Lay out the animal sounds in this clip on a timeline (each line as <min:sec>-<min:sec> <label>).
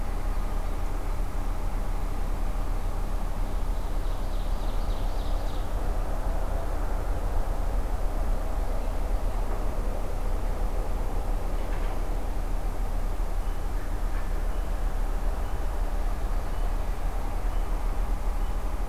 0:03.7-0:05.8 Ovenbird (Seiurus aurocapilla)